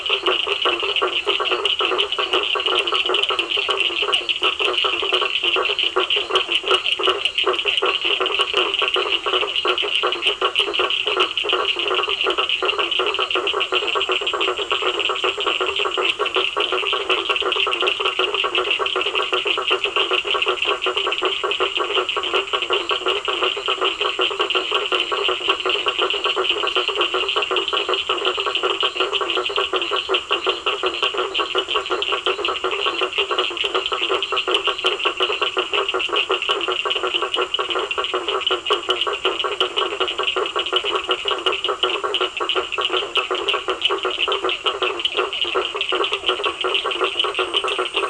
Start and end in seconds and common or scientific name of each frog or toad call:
0.0	12.4	Physalaemus cuvieri
0.0	48.0	blacksmith tree frog
0.0	48.0	Cochran's lime tree frog